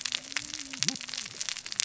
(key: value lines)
label: biophony, cascading saw
recorder: SoundTrap 600 or HydroMoth